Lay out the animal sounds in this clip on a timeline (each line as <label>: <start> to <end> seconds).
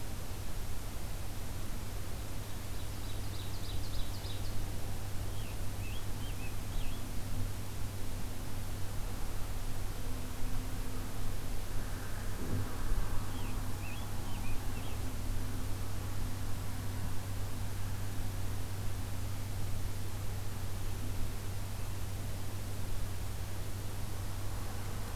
Ovenbird (Seiurus aurocapilla): 2.5 to 4.8 seconds
Scarlet Tanager (Piranga olivacea): 5.1 to 7.2 seconds
Scarlet Tanager (Piranga olivacea): 12.9 to 15.2 seconds